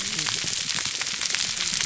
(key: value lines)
label: biophony, whup
recorder: SoundTrap 300